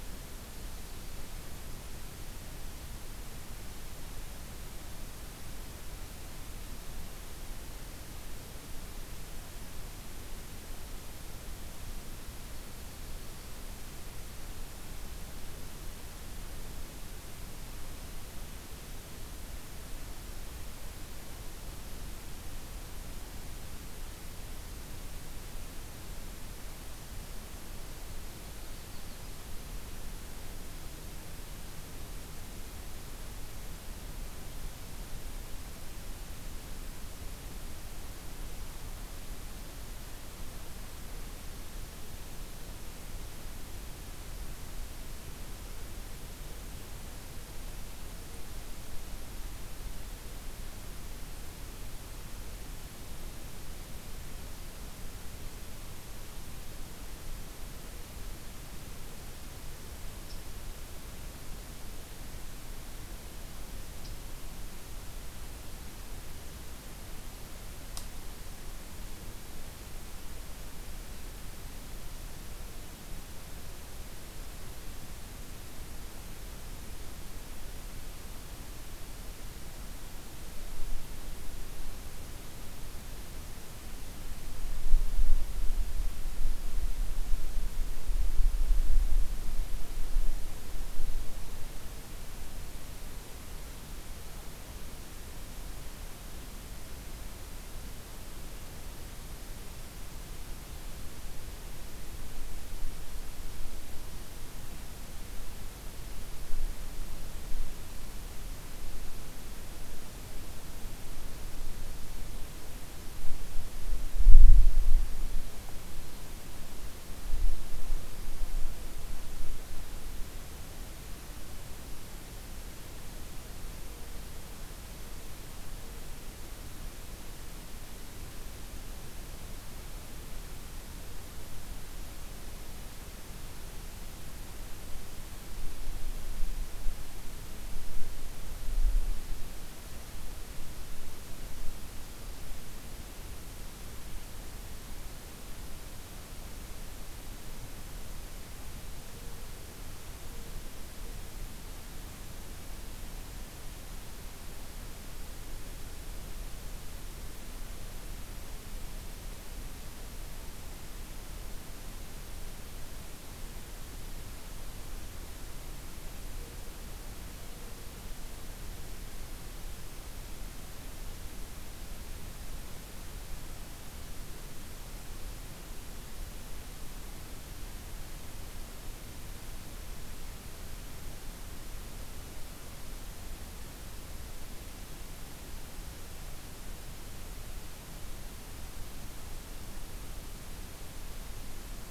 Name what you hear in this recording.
Yellow-rumped Warbler